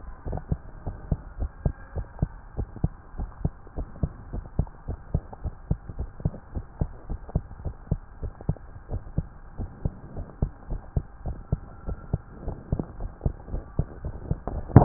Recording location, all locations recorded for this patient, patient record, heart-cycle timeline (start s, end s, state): tricuspid valve (TV)
aortic valve (AV)+pulmonary valve (PV)+tricuspid valve (TV)+mitral valve (MV)
#Age: Child
#Sex: Female
#Height: 122.0 cm
#Weight: 23.6 kg
#Pregnancy status: False
#Murmur: Absent
#Murmur locations: nan
#Most audible location: nan
#Systolic murmur timing: nan
#Systolic murmur shape: nan
#Systolic murmur grading: nan
#Systolic murmur pitch: nan
#Systolic murmur quality: nan
#Diastolic murmur timing: nan
#Diastolic murmur shape: nan
#Diastolic murmur grading: nan
#Diastolic murmur pitch: nan
#Diastolic murmur quality: nan
#Outcome: Abnormal
#Campaign: 2015 screening campaign
0.00	0.26	unannotated
0.26	0.40	S1
0.40	0.48	systole
0.48	0.62	S2
0.62	0.84	diastole
0.84	0.96	S1
0.96	1.08	systole
1.08	1.22	S2
1.22	1.40	diastole
1.40	1.50	S1
1.50	1.60	systole
1.60	1.76	S2
1.76	1.96	diastole
1.96	2.08	S1
2.08	2.18	systole
2.18	2.32	S2
2.32	2.56	diastole
2.56	2.68	S1
2.68	2.82	systole
2.82	2.94	S2
2.94	3.16	diastole
3.16	3.30	S1
3.30	3.40	systole
3.40	3.52	S2
3.52	3.76	diastole
3.76	3.88	S1
3.88	4.00	systole
4.00	4.14	S2
4.14	4.32	diastole
4.32	4.44	S1
4.44	4.56	systole
4.56	4.70	S2
4.70	4.88	diastole
4.88	4.98	S1
4.98	5.10	systole
5.10	5.22	S2
5.22	5.44	diastole
5.44	5.54	S1
5.54	5.66	systole
5.66	5.80	S2
5.80	5.98	diastole
5.98	6.10	S1
6.10	6.24	systole
6.24	6.34	S2
6.34	6.54	diastole
6.54	6.64	S1
6.64	6.80	systole
6.80	6.92	S2
6.92	7.10	diastole
7.10	7.20	S1
7.20	7.32	systole
7.32	7.46	S2
7.46	7.64	diastole
7.64	7.76	S1
7.76	7.90	systole
7.90	8.02	S2
8.02	8.22	diastole
8.22	8.32	S1
8.32	8.48	systole
8.48	8.64	S2
8.64	8.90	diastole
8.90	9.04	S1
9.04	9.16	systole
9.16	9.30	S2
9.30	9.56	diastole
9.56	9.70	S1
9.70	9.84	systole
9.84	9.94	S2
9.94	10.14	diastole
10.14	10.26	S1
10.26	10.38	systole
10.38	10.50	S2
10.50	10.70	diastole
10.70	10.82	S1
10.82	10.92	systole
10.92	11.04	S2
11.04	11.24	diastole
11.24	11.40	S1
11.40	11.50	systole
11.50	11.66	S2
11.66	11.86	diastole
11.86	11.98	S1
11.98	12.12	systole
12.12	12.22	S2
12.22	12.44	diastole
12.44	12.58	S1
12.58	12.70	systole
12.70	12.84	S2
12.84	13.00	diastole
13.00	13.12	S1
13.12	13.22	systole
13.22	13.34	S2
13.34	13.52	diastole
13.52	13.64	S1
13.64	13.76	systole
13.76	13.88	S2
13.88	14.04	diastole
14.04	14.14	S1
14.14	14.85	unannotated